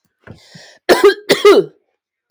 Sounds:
Cough